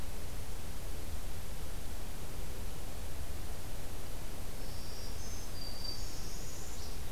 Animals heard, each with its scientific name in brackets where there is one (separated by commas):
Black-throated Green Warbler (Setophaga virens), Northern Parula (Setophaga americana)